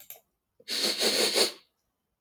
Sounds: Sniff